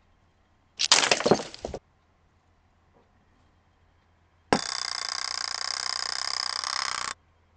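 First, glass shatters. After that, an alarm can be heard. A faint steady noise remains about 40 dB below the sounds.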